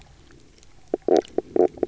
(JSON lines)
{"label": "biophony, knock croak", "recorder": "SoundTrap 300"}